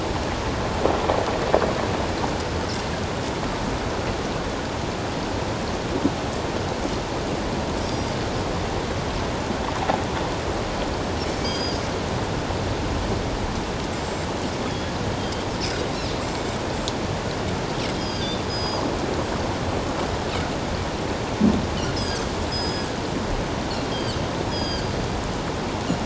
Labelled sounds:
7.8	8.2	Pacific white-sided dolphin, 4.6 to 5.7 kHz
11.3	11.8	Pacific white-sided dolphin, 3.2 to 6.6 kHz
13.9	14.9	Pacific white-sided dolphin, 3.3 to 7.7 kHz
15.2	15.4	Pacific white-sided dolphin, 3.1 to 3.3 kHz
18.0	18.8	Pacific white-sided dolphin, 3.1 to 6.7 kHz
21.9	22.9	Pacific white-sided dolphin, 3.2 to 6.7 kHz
23.9	24.9	Pacific white-sided dolphin, 2.8 to 6.8 kHz

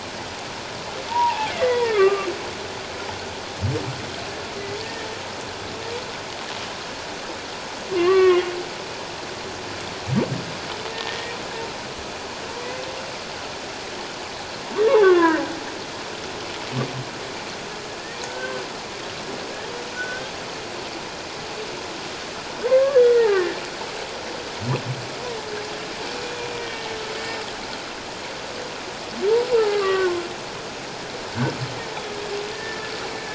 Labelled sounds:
1.1	2.3	humpback whale, 0.78 to 2.5 kHz
4.8	5.1	humpback whale, 1.7 to 1.9 kHz
7.9	8.5	humpback whale, 1.0 to 3.1 kHz
10.9	11.4	humpback whale, 1.8 to 1.9 kHz
12.6	12.8	humpback whale, 1.9 to 2.1 kHz
15.0	15.4	humpback whale, 0.91 to 2.1 kHz
18.3	18.6	humpback whale, 1.5 to 1.6 kHz
19.9	20.3	humpback whale, 1.4 to 1.6 kHz
22.7	23.6	humpback whale, 1.0 to 3.4 kHz
26.5	27.0	humpback whale, 1.8 to 2.4 kHz
29.6	30.2	humpback whale, 1.0 to 2.0 kHz
32.5	32.9	humpback whale, 1.7 to 1.8 kHz

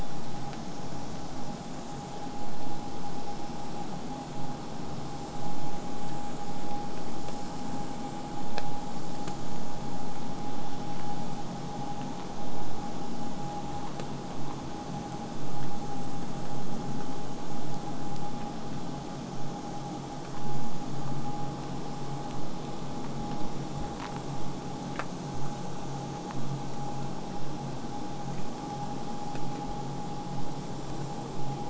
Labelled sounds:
17.3	22.3	vessel noise, 0 to 8.0 kHz

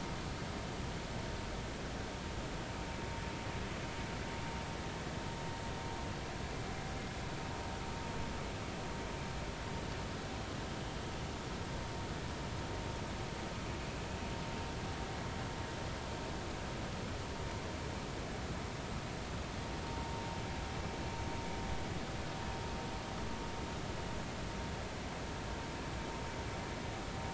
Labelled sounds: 19.9	20.2	vessel noise, 0.90 to 0.96 kHz

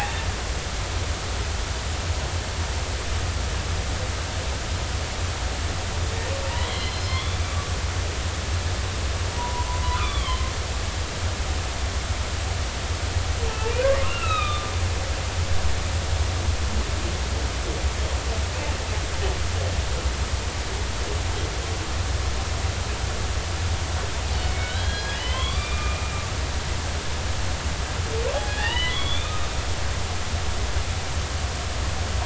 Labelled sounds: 6.5	7.4	humpback whale, 2.0 to 4.4 kHz
9.3	10.4	humpback whale, 0.90 to 3.7 kHz
14.0	14.7	humpback whale, 1.1 to 4.0 kHz
24.5	26.1	humpback whale, 0.99 to 4.2 kHz
28.4	29.5	humpback whale, 1.2 to 3.7 kHz

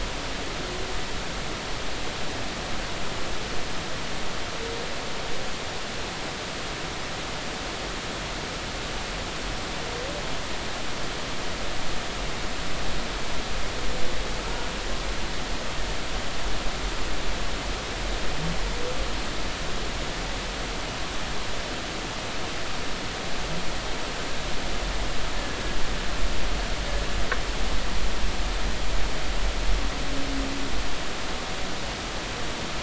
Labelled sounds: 14.4	14.7	humpback whale, 1.3 to 1.5 kHz

